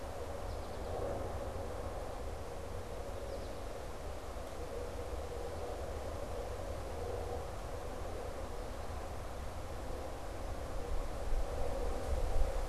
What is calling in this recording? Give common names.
American Goldfinch